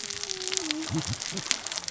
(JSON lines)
{"label": "biophony, cascading saw", "recorder": "SoundTrap 600 or HydroMoth"}